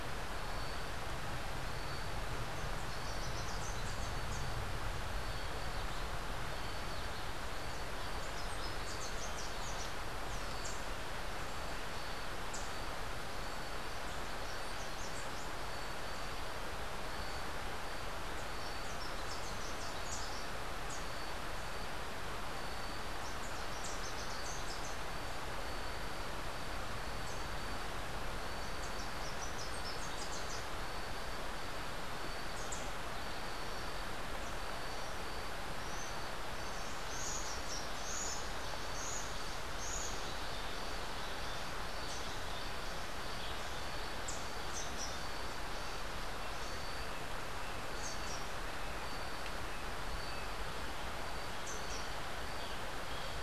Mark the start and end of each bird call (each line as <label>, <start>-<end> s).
Rufous-capped Warbler (Basileuterus rufifrons), 2.8-4.6 s
Rufous-capped Warbler (Basileuterus rufifrons), 8.3-9.9 s
Rufous-capped Warbler (Basileuterus rufifrons), 10.4-10.9 s
Rufous-capped Warbler (Basileuterus rufifrons), 12.5-12.8 s
Rufous-capped Warbler (Basileuterus rufifrons), 14.3-15.6 s
Rufous-capped Warbler (Basileuterus rufifrons), 18.3-21.4 s
Rufous-capped Warbler (Basileuterus rufifrons), 23.2-25.1 s
Rufous-capped Warbler (Basileuterus rufifrons), 28.5-30.8 s
Rufous-capped Warbler (Basileuterus rufifrons), 32.4-33.1 s
Buff-throated Saltator (Saltator maximus), 35.8-40.3 s
Rufous-capped Warbler (Basileuterus rufifrons), 44.6-45.2 s
Rufous-capped Warbler (Basileuterus rufifrons), 48.0-48.5 s
Rufous-capped Warbler (Basileuterus rufifrons), 51.5-52.2 s